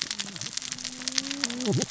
{"label": "biophony, cascading saw", "recorder": "SoundTrap 600 or HydroMoth"}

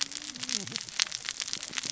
{"label": "biophony, cascading saw", "recorder": "SoundTrap 600 or HydroMoth"}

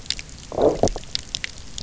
{"label": "biophony, low growl", "recorder": "SoundTrap 300"}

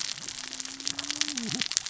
{"label": "biophony, cascading saw", "recorder": "SoundTrap 600 or HydroMoth"}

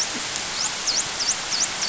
{"label": "biophony, dolphin", "recorder": "SoundTrap 500"}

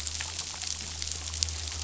{"label": "anthrophony, boat engine", "recorder": "SoundTrap 500"}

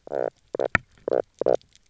{"label": "biophony, knock croak", "recorder": "SoundTrap 300"}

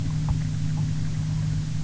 {"label": "anthrophony, boat engine", "recorder": "SoundTrap 300"}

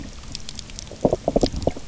{"label": "biophony, knock croak", "recorder": "SoundTrap 300"}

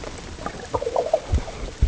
{"label": "ambient", "recorder": "HydroMoth"}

